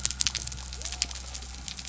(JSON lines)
{"label": "biophony", "recorder": "SoundTrap 300"}